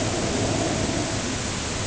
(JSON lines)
{"label": "ambient", "recorder": "HydroMoth"}